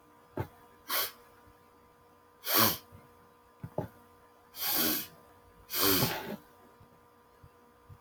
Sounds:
Sniff